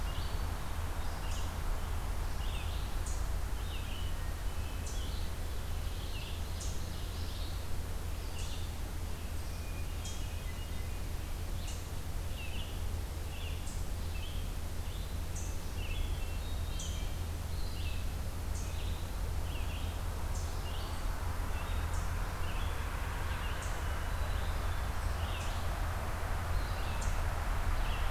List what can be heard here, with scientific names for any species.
Tamias striatus, Vireo olivaceus, Catharus guttatus, Seiurus aurocapilla